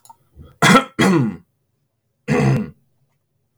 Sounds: Throat clearing